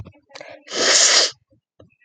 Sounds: Sniff